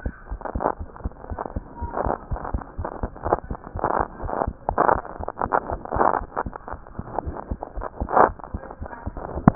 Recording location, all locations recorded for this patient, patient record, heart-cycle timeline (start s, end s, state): aortic valve (AV)
aortic valve (AV)+pulmonary valve (PV)+tricuspid valve (TV)+mitral valve (MV)
#Age: Child
#Sex: Female
#Height: 90.0 cm
#Weight: 12.4 kg
#Pregnancy status: False
#Murmur: Absent
#Murmur locations: nan
#Most audible location: nan
#Systolic murmur timing: nan
#Systolic murmur shape: nan
#Systolic murmur grading: nan
#Systolic murmur pitch: nan
#Systolic murmur quality: nan
#Diastolic murmur timing: nan
#Diastolic murmur shape: nan
#Diastolic murmur grading: nan
#Diastolic murmur pitch: nan
#Diastolic murmur quality: nan
#Outcome: Normal
#Campaign: 2015 screening campaign
0.00	4.21	unannotated
4.21	4.34	S1
4.34	4.46	systole
4.46	4.54	S2
4.54	4.67	diastole
4.67	4.80	S1
4.80	4.88	systole
4.88	5.02	S2
5.02	5.16	diastole
5.16	5.28	S1
5.28	5.40	systole
5.40	5.52	S2
5.52	5.69	diastole
5.69	5.79	S1
5.79	5.94	systole
5.94	6.03	S2
6.03	6.19	diastole
6.19	6.28	S1
6.28	6.44	systole
6.44	6.54	S2
6.54	6.70	diastole
6.70	6.82	S1
6.82	6.96	systole
6.96	7.06	S2
7.06	7.22	diastole
7.22	7.36	S1
7.36	7.48	systole
7.48	7.62	S2
7.62	7.76	diastole
7.76	7.86	S1
7.86	7.98	systole
7.98	8.06	S2
8.06	8.23	diastole
8.23	8.36	S1
8.36	8.50	systole
8.50	8.64	S2
8.64	8.80	diastole
8.80	8.90	S1
8.90	9.04	systole
9.04	9.14	S2
9.14	9.30	diastole
9.30	9.44	S1
9.44	9.55	unannotated